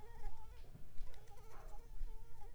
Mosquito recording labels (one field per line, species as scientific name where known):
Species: Anopheles gambiae s.l.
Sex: female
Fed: unfed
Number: one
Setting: cup